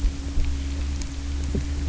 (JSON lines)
{"label": "anthrophony, boat engine", "recorder": "SoundTrap 300"}